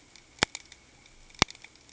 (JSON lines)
{"label": "ambient", "recorder": "HydroMoth"}